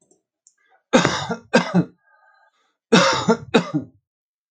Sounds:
Cough